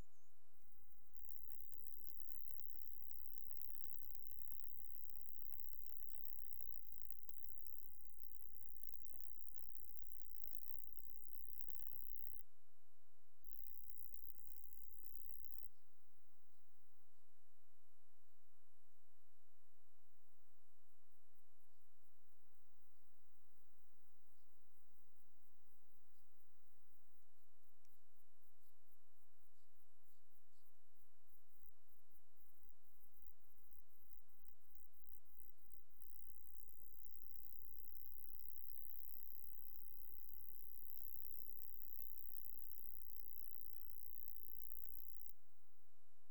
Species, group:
Stenobothrus rubicundulus
Orthoptera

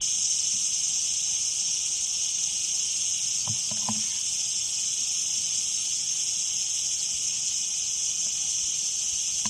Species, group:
Cicada barbara
Cicadidae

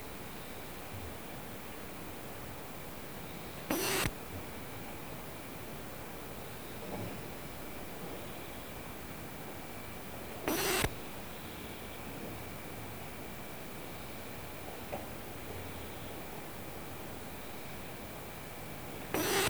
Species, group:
Poecilimon lodosi
Orthoptera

